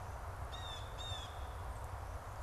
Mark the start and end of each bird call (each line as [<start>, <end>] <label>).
[0.00, 2.42] Blue Jay (Cyanocitta cristata)